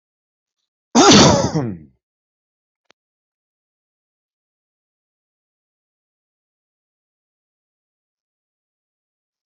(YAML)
expert_labels:
- quality: good
  cough_type: dry
  dyspnea: false
  wheezing: false
  stridor: false
  choking: false
  congestion: false
  nothing: true
  diagnosis: upper respiratory tract infection
  severity: unknown
age: 43
gender: male
respiratory_condition: false
fever_muscle_pain: false
status: healthy